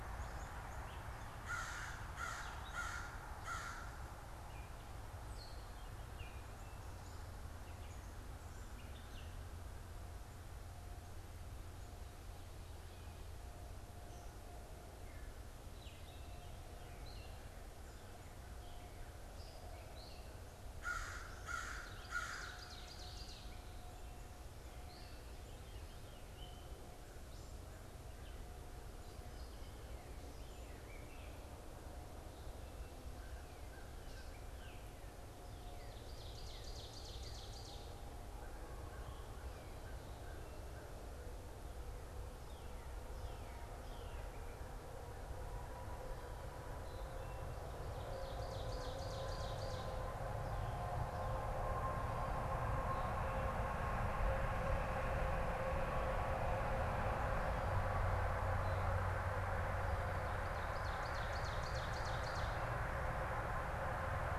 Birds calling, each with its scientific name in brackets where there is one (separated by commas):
Northern Cardinal (Cardinalis cardinalis), Gray Catbird (Dumetella carolinensis), Ovenbird (Seiurus aurocapilla), American Crow (Corvus brachyrhynchos)